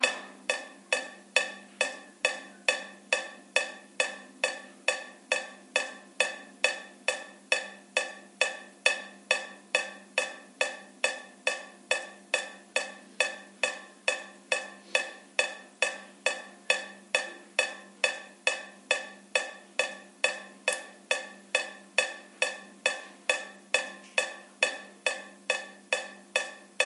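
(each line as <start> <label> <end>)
0.1 Slow, rhythmic dripping of water from a leaking faucet, creating a damp and resonant ambiance. 9.3
11.6 Water drips slowly and rhythmically from a leaking faucet, creating a damp and resonant ambiance. 26.8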